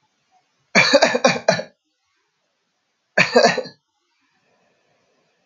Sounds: Laughter